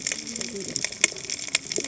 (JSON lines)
{"label": "biophony, cascading saw", "recorder": "HydroMoth"}